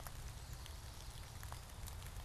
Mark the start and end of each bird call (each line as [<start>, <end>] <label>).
[0.00, 1.90] Chestnut-sided Warbler (Setophaga pensylvanica)